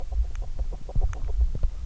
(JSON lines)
{"label": "biophony, grazing", "recorder": "SoundTrap 300"}